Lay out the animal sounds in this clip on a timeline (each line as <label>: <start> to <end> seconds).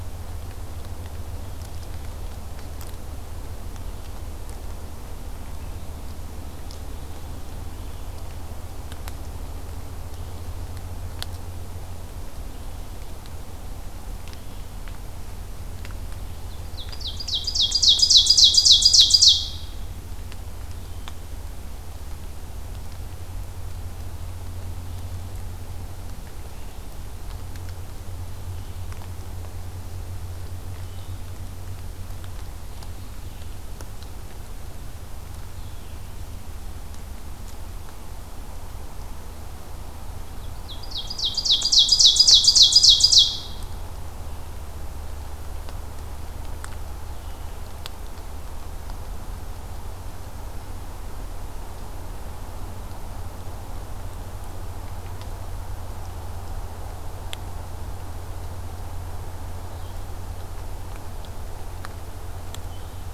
Ovenbird (Seiurus aurocapilla): 16.3 to 19.7 seconds
Blue-headed Vireo (Vireo solitarius): 20.6 to 21.2 seconds
Blue-headed Vireo (Vireo solitarius): 30.7 to 36.0 seconds
Ovenbird (Seiurus aurocapilla): 40.3 to 43.6 seconds
Blue-headed Vireo (Vireo solitarius): 44.2 to 47.6 seconds
Blue-headed Vireo (Vireo solitarius): 59.6 to 63.1 seconds